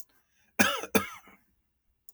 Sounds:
Cough